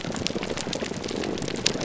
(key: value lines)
label: biophony
recorder: SoundTrap 300